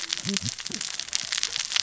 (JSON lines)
{"label": "biophony, cascading saw", "recorder": "SoundTrap 600 or HydroMoth"}